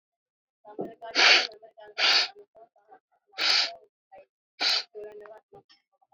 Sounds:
Sniff